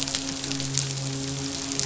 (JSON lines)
{"label": "biophony, midshipman", "recorder": "SoundTrap 500"}